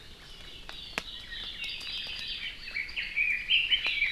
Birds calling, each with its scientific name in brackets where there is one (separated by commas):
Apapane (Himatione sanguinea), Red-billed Leiothrix (Leiothrix lutea)